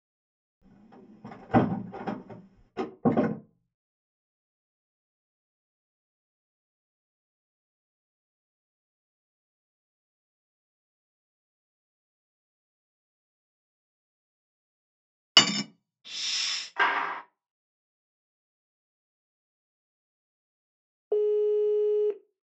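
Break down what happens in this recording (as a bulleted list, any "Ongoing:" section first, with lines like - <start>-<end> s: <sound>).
- 0.62-2.7 s: a wooden window closes
- 2.76-3.36 s: the sound of a door can be heard
- 15.34-15.62 s: you can hear cutlery
- 16.04-16.7 s: hissing is heard
- 16.76-17.22 s: there is the sound of wood
- 21.09-22.13 s: you can hear a telephone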